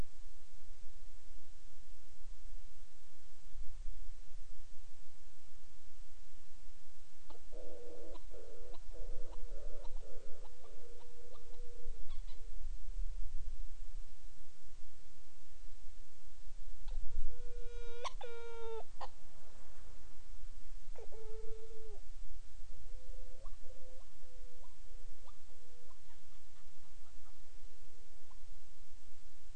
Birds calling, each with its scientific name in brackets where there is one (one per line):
Hawaiian Petrel (Pterodroma sandwichensis)